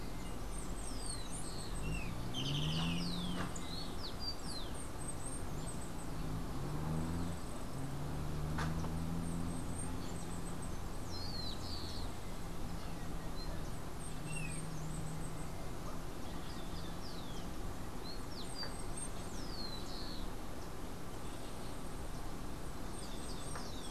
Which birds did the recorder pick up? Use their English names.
Yellow-faced Grassquit, Rufous-collared Sparrow, Golden-faced Tyrannulet